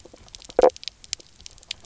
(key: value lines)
label: biophony, knock croak
recorder: SoundTrap 300